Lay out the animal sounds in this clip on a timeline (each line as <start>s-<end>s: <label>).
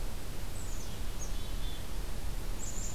0.5s-1.9s: Black-capped Chickadee (Poecile atricapillus)
2.5s-2.9s: Black-capped Chickadee (Poecile atricapillus)